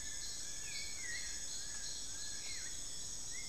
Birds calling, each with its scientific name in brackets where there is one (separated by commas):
Buckley's Forest-Falcon (Micrastur buckleyi), Long-billed Woodcreeper (Nasica longirostris), Black-billed Thrush (Turdus ignobilis)